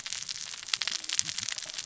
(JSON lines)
{"label": "biophony, cascading saw", "recorder": "SoundTrap 600 or HydroMoth"}